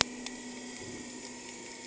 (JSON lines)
{"label": "anthrophony, boat engine", "recorder": "HydroMoth"}